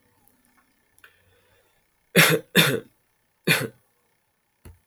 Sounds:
Cough